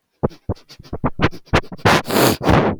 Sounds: Sniff